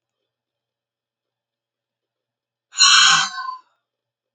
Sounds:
Sigh